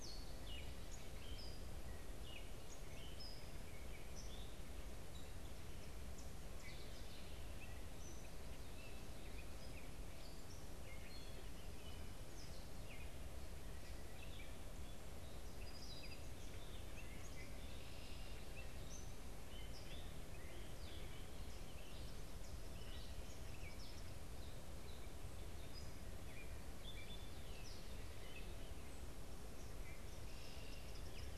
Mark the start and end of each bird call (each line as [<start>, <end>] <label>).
[0.00, 31.37] Gray Catbird (Dumetella carolinensis)
[15.33, 16.33] Song Sparrow (Melospiza melodia)
[17.83, 18.43] Red-winged Blackbird (Agelaius phoeniceus)
[30.23, 30.93] Red-winged Blackbird (Agelaius phoeniceus)
[30.43, 31.37] Eastern Kingbird (Tyrannus tyrannus)